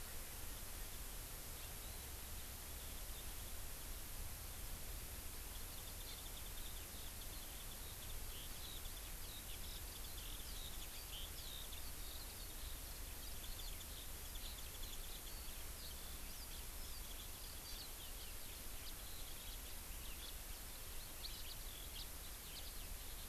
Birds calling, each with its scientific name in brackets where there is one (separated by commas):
Warbling White-eye (Zosterops japonicus), House Finch (Haemorhous mexicanus), Eurasian Skylark (Alauda arvensis)